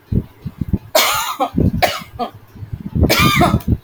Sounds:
Cough